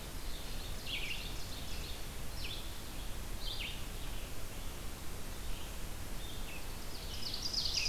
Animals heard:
Red-eyed Vireo (Vireo olivaceus)
Ovenbird (Seiurus aurocapilla)

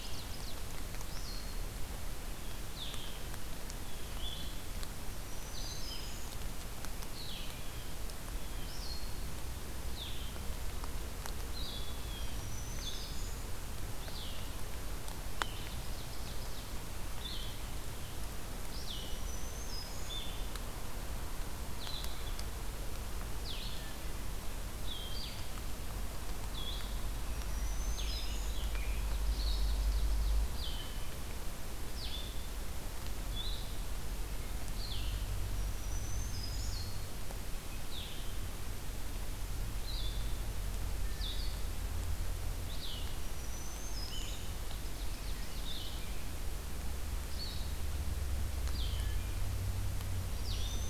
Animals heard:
Blue Jay (Cyanocitta cristata)
Ovenbird (Seiurus aurocapilla)
Black-throated Green Warbler (Setophaga virens)
Hermit Thrush (Catharus guttatus)
Blue-headed Vireo (Vireo solitarius)

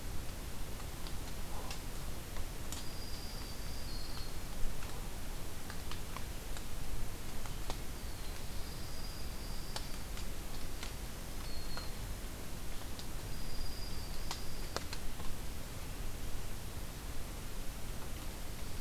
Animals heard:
Black-throated Green Warbler (Setophaga virens)
Black-throated Blue Warbler (Setophaga caerulescens)
Dark-eyed Junco (Junco hyemalis)

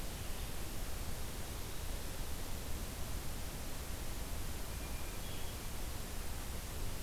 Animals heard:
Hermit Thrush (Catharus guttatus)

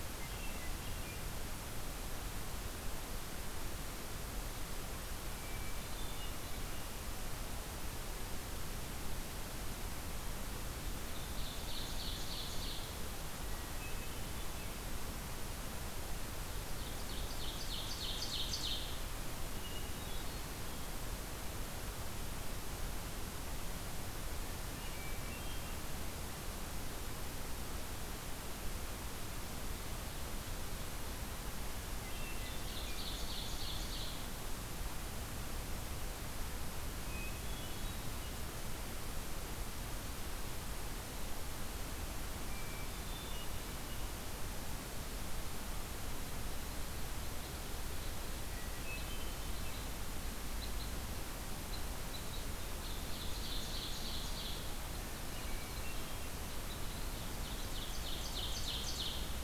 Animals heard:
Ovenbird (Seiurus aurocapilla)
Hermit Thrush (Catharus guttatus)
Red Crossbill (Loxia curvirostra)

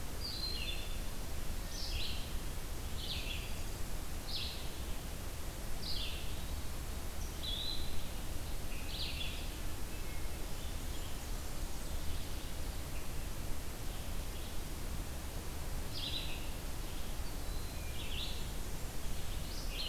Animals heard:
Red-eyed Vireo (Vireo olivaceus)
Hermit Thrush (Catharus guttatus)

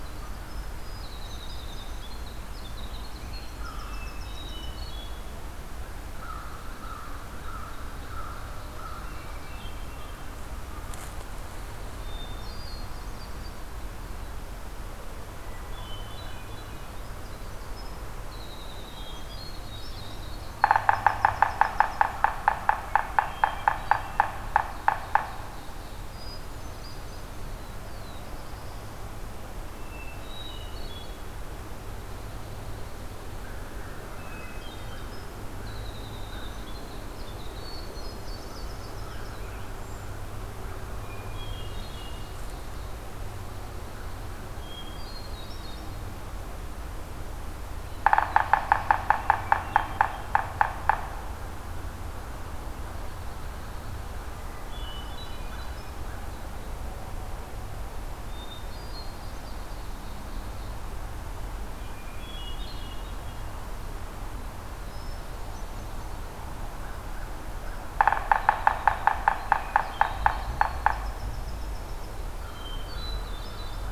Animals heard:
Yellow-bellied Sapsucker (Sphyrapicus varius)
Black-throated Blue Warbler (Setophaga caerulescens)
American Crow (Corvus brachyrhynchos)
Hermit Thrush (Catharus guttatus)
Winter Wren (Troglodytes hiemalis)
Pine Warbler (Setophaga pinus)
Ovenbird (Seiurus aurocapilla)

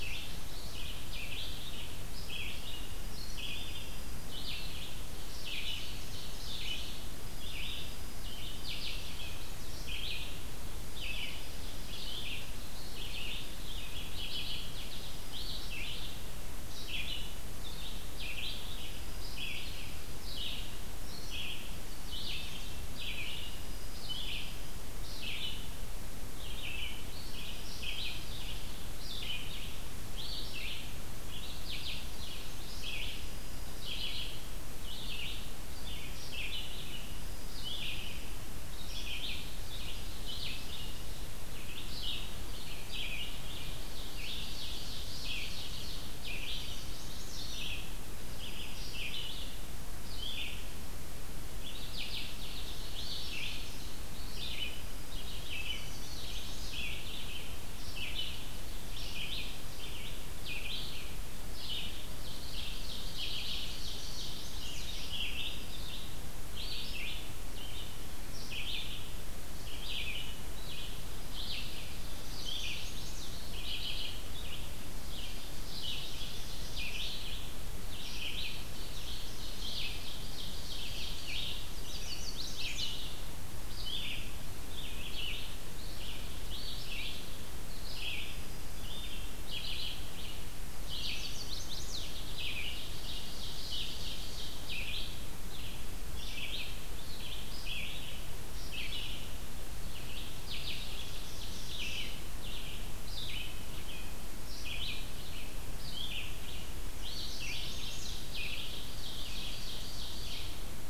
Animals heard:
Ovenbird (Seiurus aurocapilla)
American Goldfinch (Spinus tristis)
Chestnut-sided Warbler (Setophaga pensylvanica)
Red-eyed Vireo (Vireo olivaceus)
Dark-eyed Junco (Junco hyemalis)

